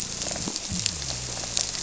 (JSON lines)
{"label": "biophony", "recorder": "SoundTrap 300"}